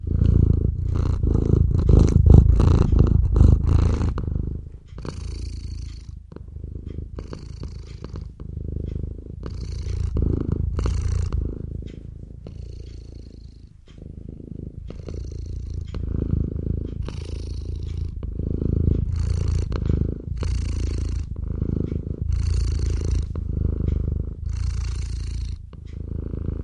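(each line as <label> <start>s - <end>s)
A Norwegian forest cat is purring loudly and rapidly. 0.0s - 4.7s
A clock on the wall is ticking softly. 0.8s - 1.1s
A clock on the wall is ticking softly. 1.7s - 2.0s
A clock on the wall is ticking softly. 2.7s - 3.0s
A clock on the wall is ticking softly. 3.7s - 3.9s
A clock on the wall is ticking softly. 4.7s - 5.0s
A Norwegian forest cat is purring softly with a steady rhythm of alpha waves. 4.7s - 9.3s
A clock on the wall is ticking softly. 5.7s - 6.0s
A clock on the wall is ticking softly. 6.7s - 7.0s
A clock on the wall is ticking softly. 7.6s - 7.9s
A clock on the wall is ticking softly. 8.7s - 8.9s
A Norwegian forest cat is purring loudly. 9.3s - 12.1s
A clock on the wall is ticking softly. 9.7s - 9.9s
A clock on the wall is ticking softly. 10.7s - 10.9s
A clock on the wall is ticking softly. 11.6s - 11.9s
A Norwegian forest cat is purring softly with a steady rhythm of alpha waves. 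12.1s - 15.7s
A clock on the wall is ticking softly. 12.7s - 12.9s
A clock on the wall is ticking softly. 13.7s - 14.0s
A clock on the wall is ticking softly. 14.7s - 15.0s
A clock on the wall is ticking softly. 15.6s - 15.9s
A Norwegian forest cat is purring in the room. 15.8s - 18.2s
A clock on the wall is ticking softly. 16.6s - 17.0s
A clock on the wall is ticking softly. 17.7s - 18.0s
A Norwegian forest cat is purring loudly. 18.2s - 26.6s
A clock on the wall is ticking softly. 18.7s - 19.0s
A clock on the wall is ticking softly. 19.7s - 20.0s
A clock on the wall is ticking softly. 20.6s - 20.9s
A clock on the wall is ticking softly. 21.6s - 21.9s
A clock on the wall is ticking softly. 22.6s - 22.9s
A clock on the wall is ticking softly. 23.6s - 23.9s
A clock on the wall is ticking softly. 24.7s - 24.9s
A clock on the wall is ticking softly. 25.6s - 25.9s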